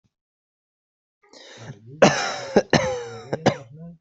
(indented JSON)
{
  "expert_labels": [
    {
      "quality": "good",
      "cough_type": "dry",
      "dyspnea": false,
      "wheezing": false,
      "stridor": false,
      "choking": false,
      "congestion": false,
      "nothing": true,
      "diagnosis": "upper respiratory tract infection",
      "severity": "mild"
    }
  ],
  "age": 27,
  "gender": "male",
  "respiratory_condition": false,
  "fever_muscle_pain": false,
  "status": "COVID-19"
}